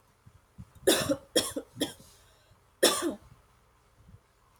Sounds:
Cough